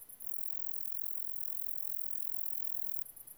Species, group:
Roeseliana roeselii
Orthoptera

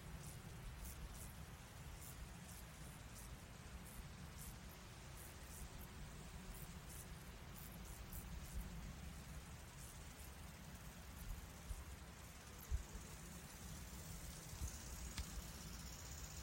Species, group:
Chorthippus brunneus
Orthoptera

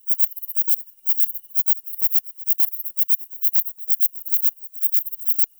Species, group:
Platycleis intermedia
Orthoptera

